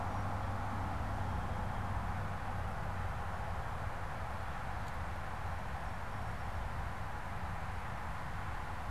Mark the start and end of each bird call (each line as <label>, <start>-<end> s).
Song Sparrow (Melospiza melodia), 0.0-2.2 s